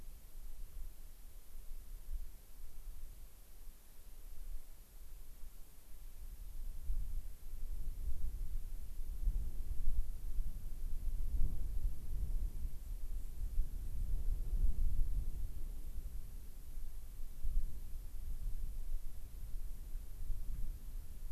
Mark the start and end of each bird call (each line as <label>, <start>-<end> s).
White-crowned Sparrow (Zonotrichia leucophrys), 12.7-14.1 s